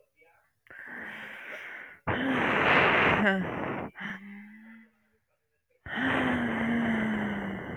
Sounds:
Sigh